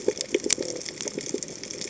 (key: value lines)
label: biophony
recorder: HydroMoth